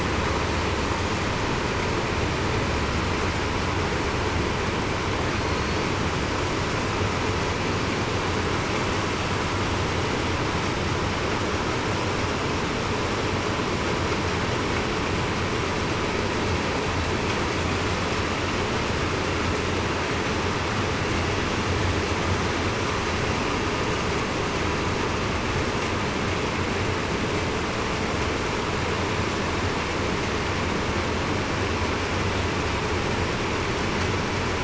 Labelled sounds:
5.3	5.8	killer whale, southern resident, 4.2 to 4.4 kHz

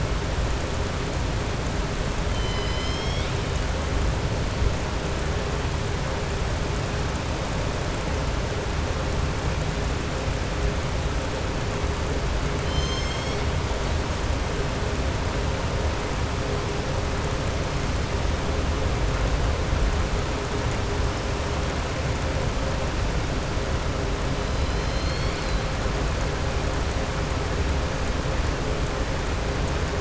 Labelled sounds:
2.2	3.3	killer whale, southern resident, 2.0 to 6.4 kHz
24.4	25.6	killer whale, southern resident, 2.3 to 5.5 kHz

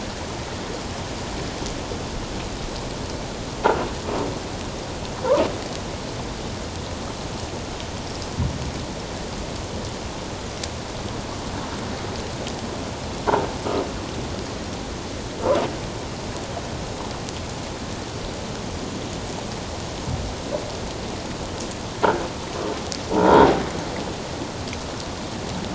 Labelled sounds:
23.1	23.5	croaking sound likely from a nearby submerged object, 0.84 to 1.0 kHz

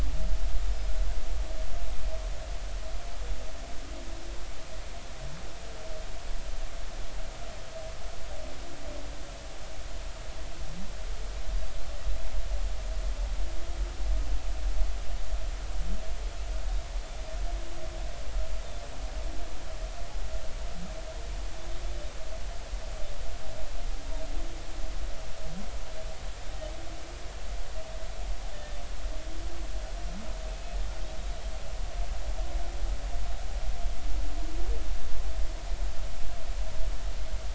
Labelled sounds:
28.5	28.8	humpback whale, 1.7 to 1.9 kHz

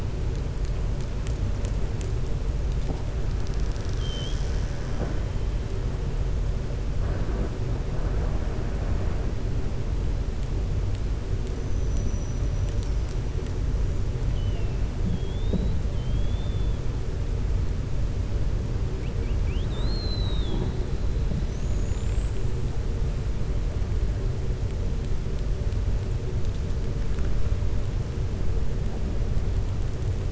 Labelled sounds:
14.2	14.7	killer whale, 2.1 to 3.3 kHz
15.0	16.7	killer whale, 3.1 to 4.0 kHz
18.9	20.7	killer whale, 0.73 to 4.3 kHz
21.4	22.5	killer whale, 6.0 to 7.9 kHz

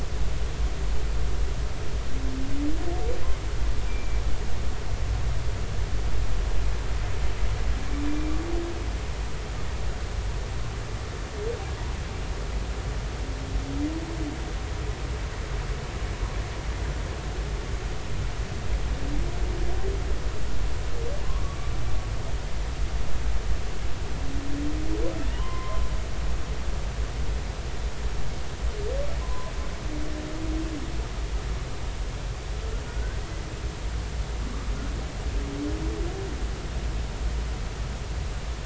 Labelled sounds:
3.9	4.2	humpback whale, 2.3 to 2.4 kHz
21.4	21.7	humpback whale, 1.1 to 1.2 kHz
25.4	25.9	humpback whale, 0.96 to 2.1 kHz
29.2	29.5	humpback whale, 0.96 to 1.1 kHz
32.9	33.2	humpback whale, 1.4 to 1.7 kHz

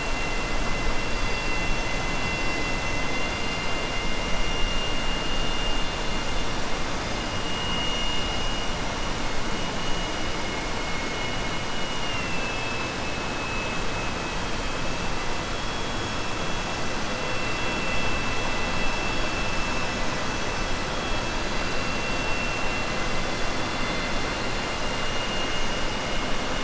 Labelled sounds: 3.0	3.9	killer whale, southern resident, 2.0 to 3.5 kHz
24.8	25.7	killer whale, southern resident, 2.1 to 3.6 kHz

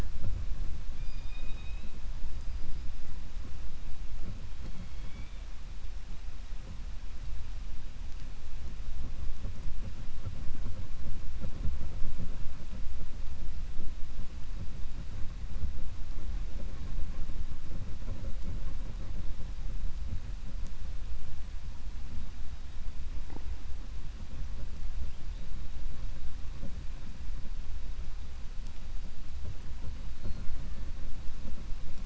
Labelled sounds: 0.9	1.9	killer whale, 2.4 to 5.0 kHz

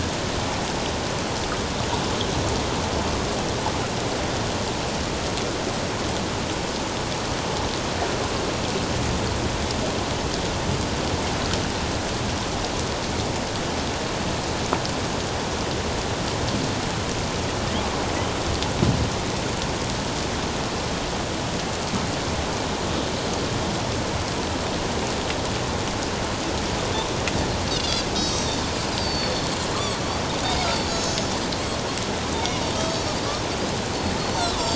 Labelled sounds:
27.7	29.6	Pacific white-sided dolphin, 3.3 to 7.8 kHz
30.9	31.3	Pacific white-sided dolphin, 3.9 to 8.0 kHz
32.8	33.1	Pacific white-sided dolphin, 4.4 to 6.6 kHz
34.2	34.6	Pacific white-sided dolphin, 3.7 to 4.6 kHz

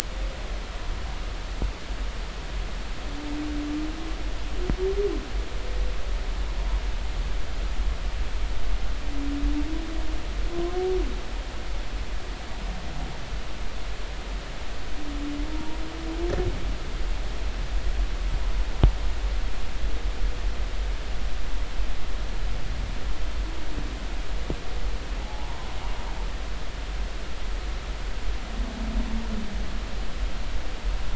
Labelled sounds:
15.5	15.8	humpback whale, 0.86 to 1.0 kHz
25.2	25.8	humpback whale, 0.80 to 1.1 kHz

